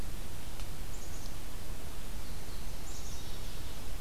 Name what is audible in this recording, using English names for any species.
Black-capped Chickadee